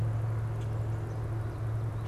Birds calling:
Common Grackle (Quiscalus quiscula)

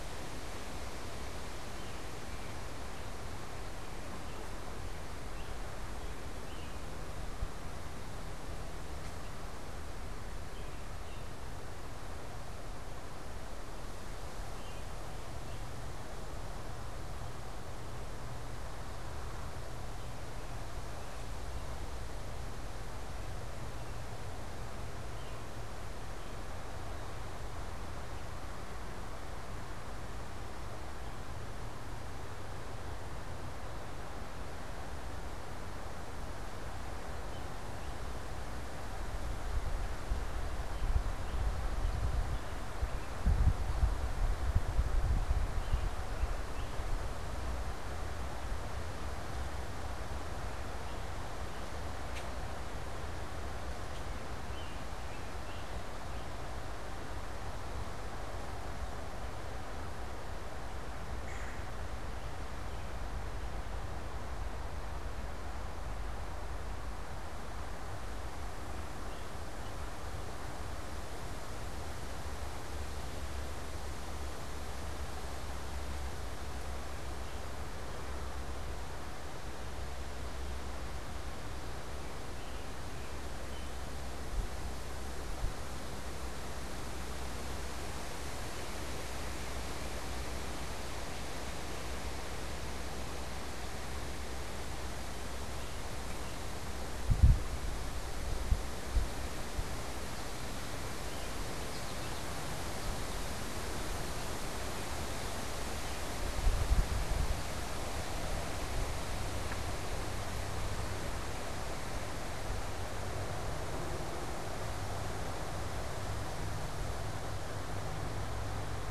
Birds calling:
American Goldfinch (Spinus tristis), unidentified bird, American Robin (Turdus migratorius), Red-bellied Woodpecker (Melanerpes carolinus)

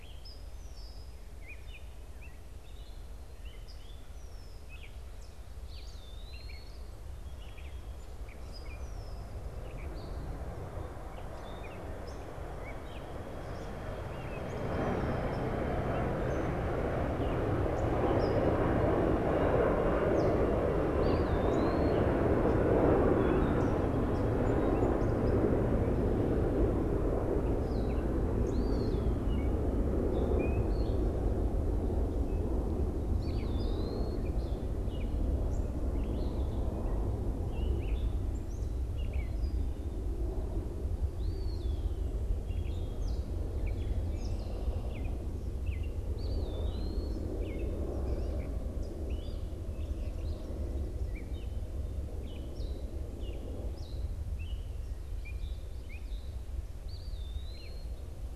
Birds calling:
Eastern Wood-Pewee (Contopus virens), Gray Catbird (Dumetella carolinensis), Red-winged Blackbird (Agelaius phoeniceus)

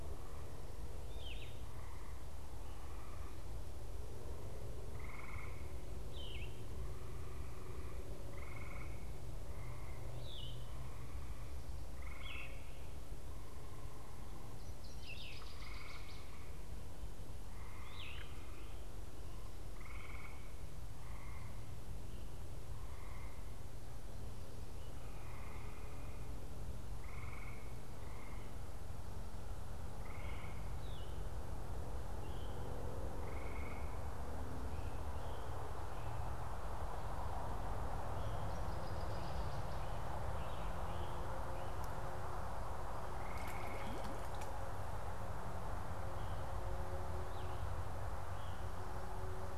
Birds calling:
Yellow-throated Vireo (Vireo flavifrons), Great Crested Flycatcher (Myiarchus crinitus), Veery (Catharus fuscescens), Northern Waterthrush (Parkesia noveboracensis)

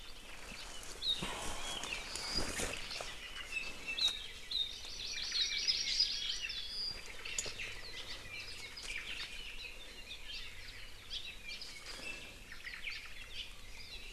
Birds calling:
Hawaii Amakihi (Chlorodrepanis virens), Hawaii Creeper (Loxops mana), Apapane (Himatione sanguinea), Iiwi (Drepanis coccinea), Omao (Myadestes obscurus)

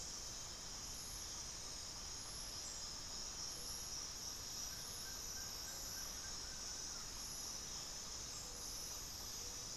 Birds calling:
Plain-winged Antshrike (Thamnophilus schistaceus)

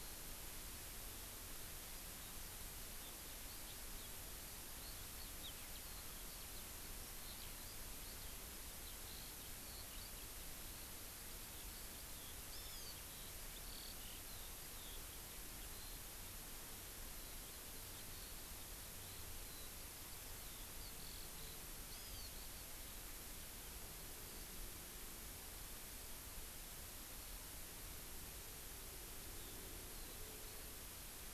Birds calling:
Hawaii Amakihi (Chlorodrepanis virens), Eurasian Skylark (Alauda arvensis)

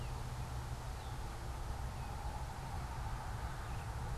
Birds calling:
Red-eyed Vireo (Vireo olivaceus)

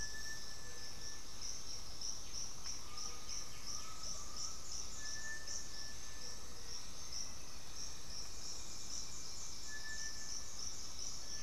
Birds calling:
Elegant Woodcreeper (Xiphorhynchus elegans), Undulated Tinamou (Crypturellus undulatus), Cinereous Tinamou (Crypturellus cinereus), Gray-fronted Dove (Leptotila rufaxilla), White-winged Becard (Pachyramphus polychopterus)

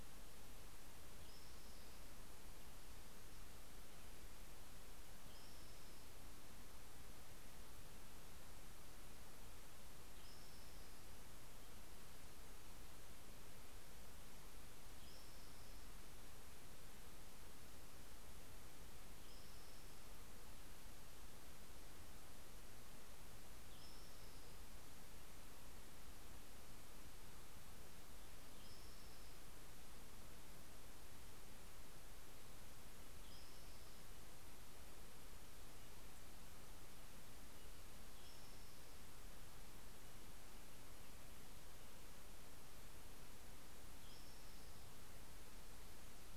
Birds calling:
Spotted Towhee (Pipilo maculatus)

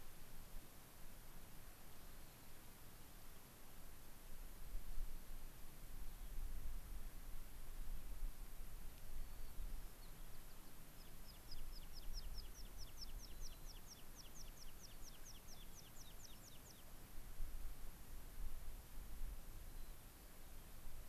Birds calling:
White-crowned Sparrow (Zonotrichia leucophrys), American Pipit (Anthus rubescens)

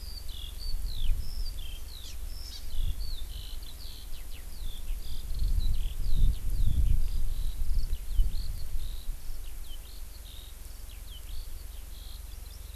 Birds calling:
Hawaii Amakihi (Chlorodrepanis virens), Eurasian Skylark (Alauda arvensis)

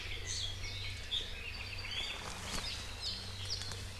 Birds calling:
Iiwi (Drepanis coccinea), Apapane (Himatione sanguinea)

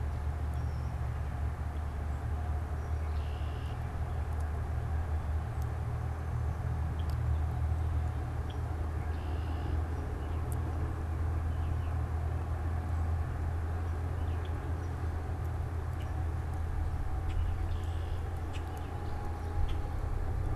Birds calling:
Red-winged Blackbird (Agelaius phoeniceus), Baltimore Oriole (Icterus galbula)

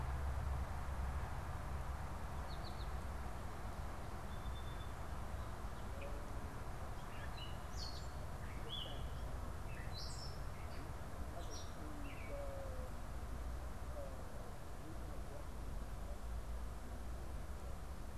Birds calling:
Song Sparrow (Melospiza melodia), Gray Catbird (Dumetella carolinensis), American Goldfinch (Spinus tristis)

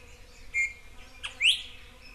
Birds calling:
Iiwi (Drepanis coccinea)

